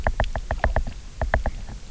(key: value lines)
label: biophony, knock
recorder: SoundTrap 300